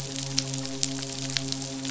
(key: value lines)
label: biophony, midshipman
recorder: SoundTrap 500